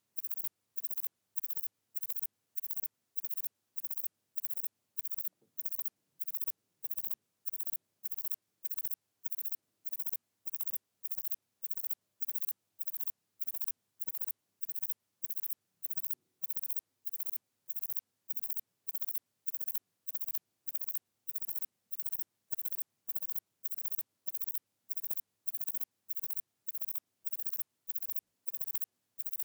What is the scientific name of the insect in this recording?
Platycleis albopunctata